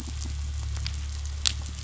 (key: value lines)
label: anthrophony, boat engine
recorder: SoundTrap 500